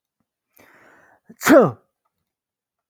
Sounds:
Sneeze